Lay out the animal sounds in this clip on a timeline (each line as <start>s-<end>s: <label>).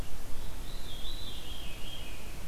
0.0s-2.5s: Red-eyed Vireo (Vireo olivaceus)
0.4s-2.4s: Veery (Catharus fuscescens)